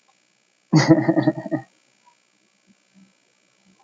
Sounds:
Laughter